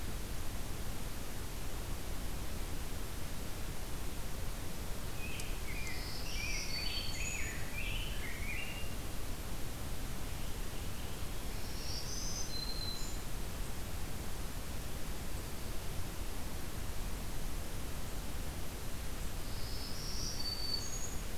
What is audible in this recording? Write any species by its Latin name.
Pheucticus ludovicianus, Setophaga virens